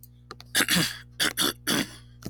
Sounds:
Throat clearing